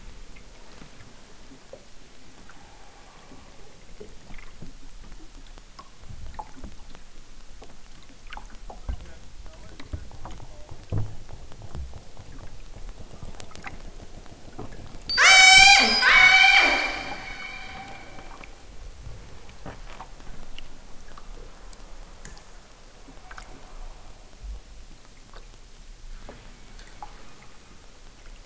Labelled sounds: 15.0	17.0	killer whale, southern Alaska resident, 0.23 to 8.0 kHz

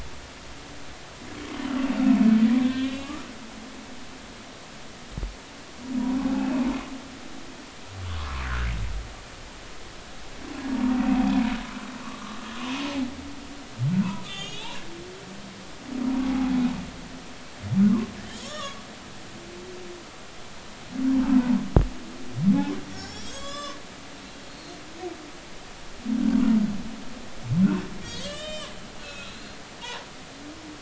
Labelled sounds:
2.6	3.1	humpback whale, 1.5 to 3.6 kHz
6.4	6.7	humpback whale, 2.4 to 2.7 kHz
8.2	8.7	humpback whale, 0.96 to 1.9 kHz
12.0	12.4	humpback whale, 1.0 to 1.3 kHz
14.0	14.8	humpback whale, 0.90 to 6.8 kHz
16.2	16.6	humpback whale, 0.80 to 0.86 kHz
18.3	18.8	humpback whale, 1.1 to 6.8 kHz
22.9	23.8	humpback whale, 0.99 to 7.6 kHz
24.5	24.8	humpback whale, 4.0 to 4.5 kHz
28.0	29.5	humpback whale, 1.1 to 8.0 kHz
29.8	30.1	humpback whale, 0.83 to 1.1 kHz

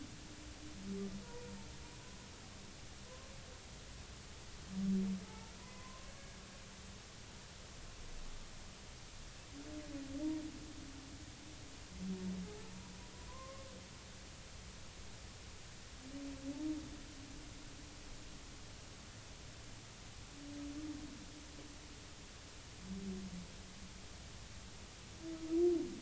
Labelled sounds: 3.1	3.3	humpback whale, 0.96 to 1.1 kHz
5.2	6.1	humpback whale, 0.83 to 2.1 kHz
13.3	13.7	humpback whale, 0.96 to 1.2 kHz

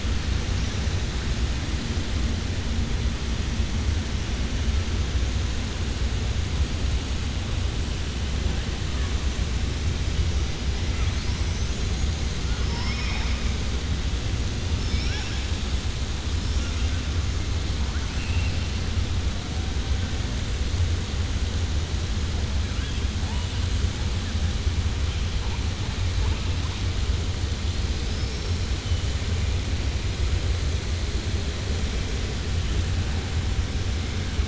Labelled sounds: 12.5	13.4	killer whale, southern resident, 0.78 to 5.5 kHz
28.0	28.7	killer whale, southern resident, 4.5 to 5.7 kHz

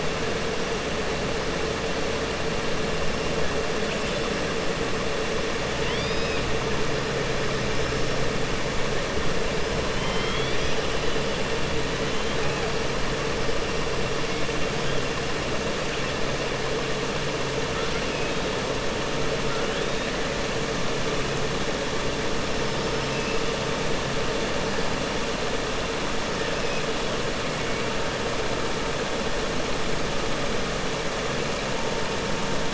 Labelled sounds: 5.7	6.4	killer whale, southern resident, 2.0 to 5.2 kHz
9.9	10.8	killer whale, southern resident, 1.3 to 5.9 kHz

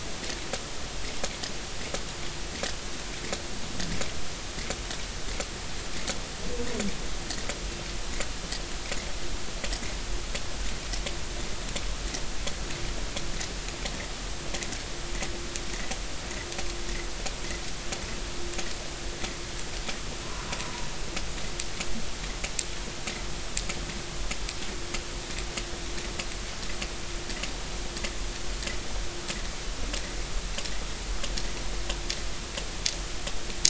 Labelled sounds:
20.6	20.9	vessel noise, 0.90 to 1.1 kHz

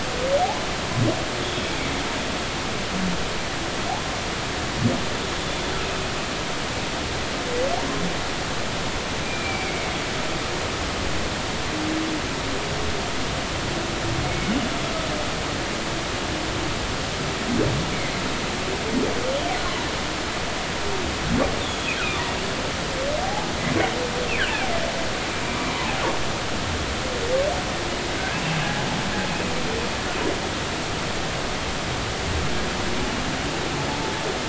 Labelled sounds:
1.4	1.7	humpback whale, 3.2 to 3.5 kHz
9.2	9.9	humpback whale, 2.1 to 2.5 kHz
14.2	14.5	humpback whale, 2.1 to 2.3 kHz
21.6	21.9	humpback whale, 3.3 to 3.7 kHz
23.2	23.5	humpback whale, 0.80 to 0.90 kHz
24.4	24.7	humpback whale, 2.3 to 3.4 kHz
25.5	25.9	humpback whale, 0.93 to 1.2 kHz
28.2	28.4	humpback whale, 1.5 to 1.7 kHz

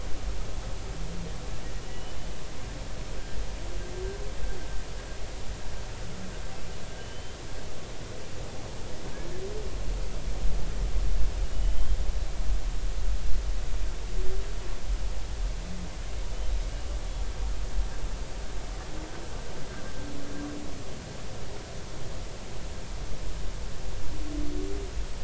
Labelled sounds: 1.9	2.2	humpback whale, 2.8 to 3.0 kHz
7.0	7.4	humpback whale, 2.9 to 3.2 kHz
11.5	12.0	humpback whale, 2.9 to 3.3 kHz

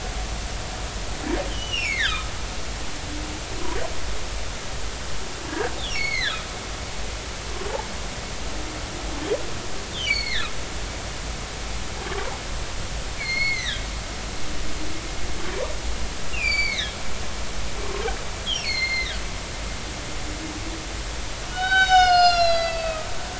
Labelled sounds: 1.5	2.3	humpback whale, 0.99 to 4.5 kHz
5.9	6.4	humpback whale, 1.4 to 6.7 kHz
10.0	10.5	humpback whale, 1.6 to 4.7 kHz
13.2	13.9	humpback whale, 1.5 to 4.4 kHz
16.3	16.9	humpback whale, 1.6 to 7.3 kHz
18.5	19.2	humpback whale, 1.8 to 4.5 kHz
21.5	23.1	humpback whale, 0.80 to 7.1 kHz

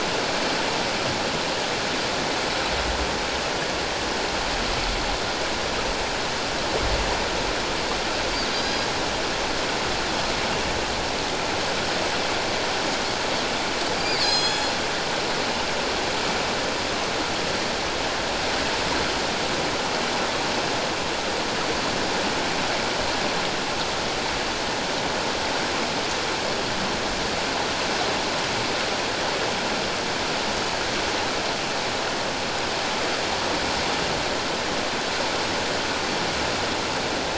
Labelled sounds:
8.5	8.9	Pacific white-sided dolphin, 3.9 to 5.1 kHz
14.0	14.8	Pacific white-sided dolphin, 3.2 to 7.9 kHz

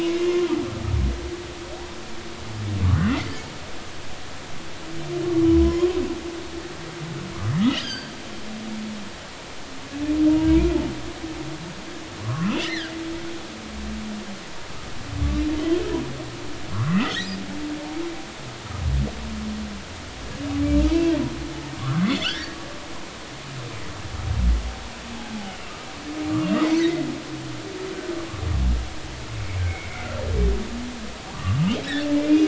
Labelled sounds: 0.2	0.5	humpback whale, 1.0 to 2.2 kHz
3.1	3.3	humpback whale, 1.9 to 2.2 kHz
5.4	5.9	humpback whale, 0.96 to 1.1 kHz
7.5	8.1	humpback whale, 1.5 to 5.1 kHz
10.3	10.8	humpback whale, 2.2 to 2.9 kHz
12.2	12.9	humpback whale, 0.99 to 4.2 kHz
15.6	15.8	humpback whale, 3.0 to 3.3 kHz
16.9	17.3	humpback whale, 1.0 to 2.1 kHz
20.8	21.2	humpback whale, 0.86 to 2.8 kHz
21.8	22.6	humpback whale, 1.1 to 4.8 kHz
26.8	27.1	humpback whale, 1.8 to 2.1 kHz
29.9	30.2	humpback whale, 1.3 to 1.5 kHz
31.3	32.4	humpback whale, 0.90 to 2.6 kHz

